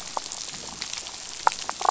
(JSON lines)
{"label": "biophony, damselfish", "recorder": "SoundTrap 500"}